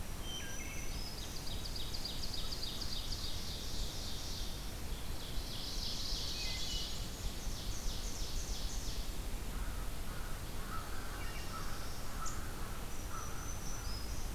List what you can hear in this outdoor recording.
Black-throated Green Warbler, Wood Thrush, Ovenbird, Black-and-white Warbler, American Crow, Black-throated Blue Warbler